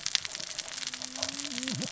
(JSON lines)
{"label": "biophony, cascading saw", "recorder": "SoundTrap 600 or HydroMoth"}